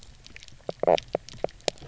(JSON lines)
{"label": "biophony, knock croak", "recorder": "SoundTrap 300"}